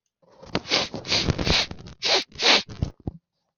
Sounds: Sniff